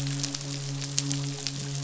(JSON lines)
{"label": "biophony, midshipman", "recorder": "SoundTrap 500"}